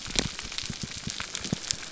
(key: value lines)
label: biophony
recorder: SoundTrap 300